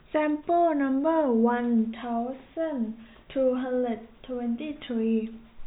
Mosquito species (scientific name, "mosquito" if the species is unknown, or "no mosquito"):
no mosquito